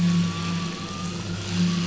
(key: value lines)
label: anthrophony, boat engine
recorder: SoundTrap 500